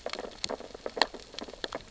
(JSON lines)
{"label": "biophony, sea urchins (Echinidae)", "recorder": "SoundTrap 600 or HydroMoth"}